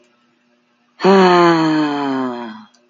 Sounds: Sigh